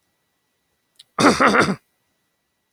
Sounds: Throat clearing